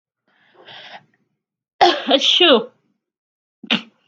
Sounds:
Sneeze